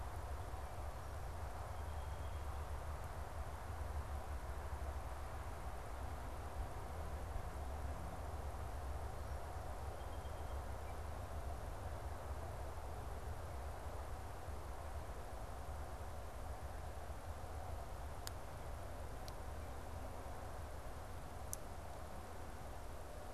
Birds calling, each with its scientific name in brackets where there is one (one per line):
Song Sparrow (Melospiza melodia)